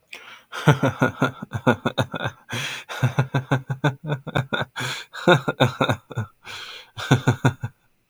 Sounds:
Laughter